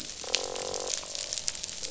{"label": "biophony, croak", "recorder": "SoundTrap 500"}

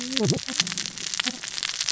{"label": "biophony, cascading saw", "recorder": "SoundTrap 600 or HydroMoth"}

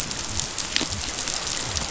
{"label": "biophony", "recorder": "SoundTrap 500"}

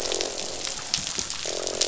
{"label": "biophony, croak", "recorder": "SoundTrap 500"}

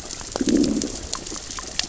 {"label": "biophony, growl", "recorder": "SoundTrap 600 or HydroMoth"}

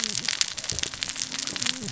{"label": "biophony, cascading saw", "recorder": "SoundTrap 600 or HydroMoth"}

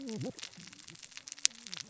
{"label": "biophony, cascading saw", "recorder": "SoundTrap 600 or HydroMoth"}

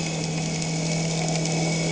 {"label": "anthrophony, boat engine", "recorder": "HydroMoth"}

